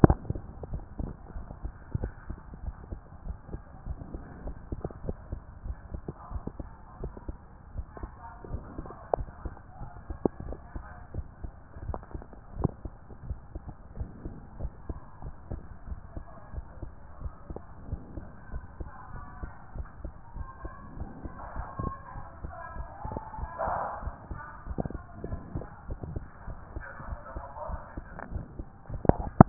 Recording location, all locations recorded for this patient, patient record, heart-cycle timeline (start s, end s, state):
tricuspid valve (TV)
aortic valve (AV)+pulmonary valve (PV)+tricuspid valve (TV)+mitral valve (MV)
#Age: Child
#Sex: Male
#Height: 142.0 cm
#Weight: 42.4 kg
#Pregnancy status: False
#Murmur: Absent
#Murmur locations: nan
#Most audible location: nan
#Systolic murmur timing: nan
#Systolic murmur shape: nan
#Systolic murmur grading: nan
#Systolic murmur pitch: nan
#Systolic murmur quality: nan
#Diastolic murmur timing: nan
#Diastolic murmur shape: nan
#Diastolic murmur grading: nan
#Diastolic murmur pitch: nan
#Diastolic murmur quality: nan
#Outcome: Normal
#Campaign: 2014 screening campaign
0.00	0.48	unannotated
0.48	0.70	diastole
0.70	0.84	S1
0.84	1.00	systole
1.00	1.12	S2
1.12	1.36	diastole
1.36	1.46	S1
1.46	1.62	systole
1.62	1.72	S2
1.72	1.98	diastole
1.98	2.12	S1
2.12	2.28	systole
2.28	2.38	S2
2.38	2.64	diastole
2.64	2.76	S1
2.76	2.90	systole
2.90	3.00	S2
3.00	3.26	diastole
3.26	3.38	S1
3.38	3.52	systole
3.52	3.60	S2
3.60	3.86	diastole
3.86	3.98	S1
3.98	4.12	systole
4.12	4.22	S2
4.22	4.44	diastole
4.44	4.56	S1
4.56	4.70	systole
4.70	4.80	S2
4.80	5.04	diastole
5.04	5.16	S1
5.16	5.30	systole
5.30	5.40	S2
5.40	5.64	diastole
5.64	5.76	S1
5.76	5.92	systole
5.92	6.02	S2
6.02	6.32	diastole
6.32	6.44	S1
6.44	6.58	systole
6.58	6.68	S2
6.68	7.00	diastole
7.00	7.12	S1
7.12	7.28	systole
7.28	7.36	S2
7.36	7.74	diastole
7.74	7.86	S1
7.86	8.02	systole
8.02	8.10	S2
8.10	8.50	diastole
8.50	8.62	S1
8.62	8.76	systole
8.76	8.86	S2
8.86	9.16	diastole
9.16	9.28	S1
9.28	9.44	systole
9.44	9.54	S2
9.54	9.80	diastole
9.80	9.90	S1
9.90	10.08	systole
10.08	10.18	S2
10.18	10.44	diastole
10.44	10.58	S1
10.58	10.74	systole
10.74	10.84	S2
10.84	11.14	diastole
11.14	11.26	S1
11.26	11.42	systole
11.42	11.52	S2
11.52	11.84	diastole
11.84	11.98	S1
11.98	12.14	systole
12.14	12.22	S2
12.22	12.56	diastole
12.56	12.72	S1
12.72	12.84	systole
12.84	12.92	S2
12.92	13.26	diastole
13.26	13.38	S1
13.38	13.56	systole
13.56	13.62	S2
13.62	13.98	diastole
13.98	14.10	S1
14.10	14.24	systole
14.24	14.34	S2
14.34	14.60	diastole
14.60	14.72	S1
14.72	14.88	systole
14.88	14.98	S2
14.98	15.24	diastole
15.24	15.34	S1
15.34	15.50	systole
15.50	15.60	S2
15.60	15.88	diastole
15.88	16.00	S1
16.00	16.14	systole
16.14	16.24	S2
16.24	16.54	diastole
16.54	16.66	S1
16.66	16.82	systole
16.82	16.90	S2
16.90	17.22	diastole
17.22	17.32	S1
17.32	17.50	systole
17.50	17.60	S2
17.60	17.90	diastole
17.90	18.00	S1
18.00	18.14	systole
18.14	18.24	S2
18.24	18.52	diastole
18.52	18.64	S1
18.64	18.80	systole
18.80	18.90	S2
18.90	19.12	diastole
19.12	19.24	S1
19.24	19.42	systole
19.42	19.50	S2
19.50	19.76	diastole
19.76	19.88	S1
19.88	20.02	systole
20.02	20.12	S2
20.12	20.36	diastole
20.36	20.48	S1
20.48	20.62	systole
20.62	20.72	S2
20.72	20.98	diastole
20.98	21.08	S1
21.08	21.24	systole
21.24	21.30	S2
21.30	21.56	diastole
21.56	21.66	S1
21.66	21.80	systole
21.80	21.94	S2
21.94	22.16	diastole
22.16	22.26	S1
22.26	22.42	systole
22.42	22.52	S2
22.52	22.76	diastole
22.76	22.88	S1
22.88	23.06	systole
23.06	23.18	S2
23.18	23.38	diastole
23.38	23.50	S1
23.50	23.66	systole
23.66	23.76	S2
23.76	24.02	diastole
24.02	24.14	S1
24.14	24.30	systole
24.30	24.40	S2
24.40	24.68	diastole
24.68	24.80	S1
24.80	24.92	systole
24.92	25.02	S2
25.02	25.26	diastole
25.26	25.40	S1
25.40	25.54	systole
25.54	25.66	S2
25.66	25.88	diastole
25.88	26.00	S1
26.00	26.12	systole
26.12	26.24	S2
26.24	26.46	diastole
26.46	26.58	S1
26.58	26.74	systole
26.74	26.84	S2
26.84	27.08	diastole
27.08	27.20	S1
27.20	27.34	systole
27.34	27.44	S2
27.44	27.68	diastole
27.68	27.80	S1
27.80	27.96	systole
27.96	28.04	S2
28.04	28.32	diastole
28.32	28.46	S1
28.46	28.58	systole
28.58	28.66	S2
28.66	28.79	diastole
28.79	29.49	unannotated